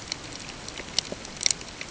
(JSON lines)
{"label": "ambient", "recorder": "HydroMoth"}